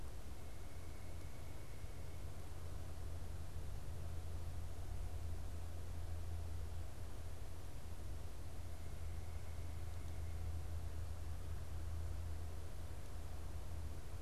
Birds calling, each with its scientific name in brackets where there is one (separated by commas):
White-breasted Nuthatch (Sitta carolinensis)